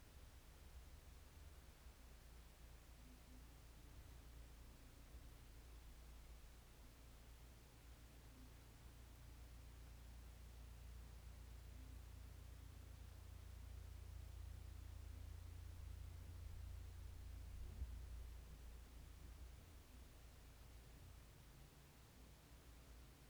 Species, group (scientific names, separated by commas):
Leptophyes punctatissima, Orthoptera